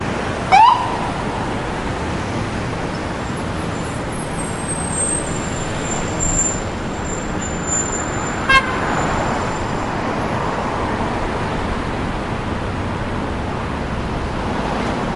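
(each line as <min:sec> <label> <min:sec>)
0:00.5 A siren sounds once outside. 0:00.8
0:00.9 Multiple cars are driving in traffic. 0:15.2
0:08.5 A car horn sounds once. 0:08.7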